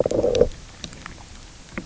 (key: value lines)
label: biophony, low growl
recorder: SoundTrap 300